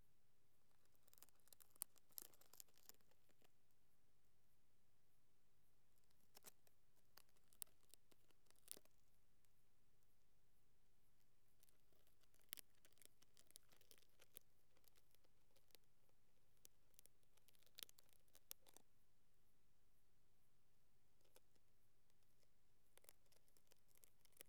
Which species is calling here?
Eupholidoptera latens